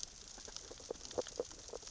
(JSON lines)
{"label": "biophony, sea urchins (Echinidae)", "recorder": "SoundTrap 600 or HydroMoth"}